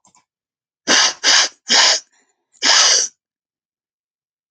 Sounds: Sniff